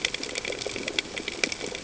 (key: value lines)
label: ambient
recorder: HydroMoth